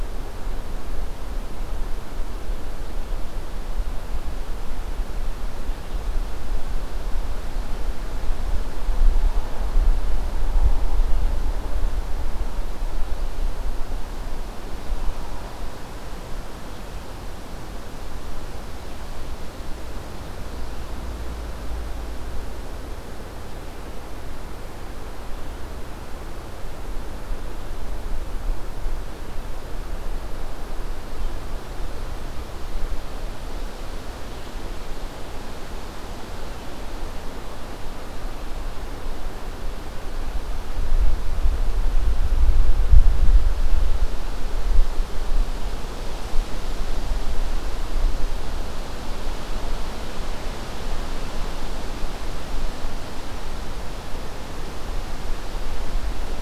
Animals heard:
forest ambience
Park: Acadia National Park